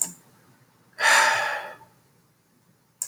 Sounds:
Sigh